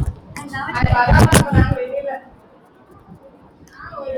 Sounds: Throat clearing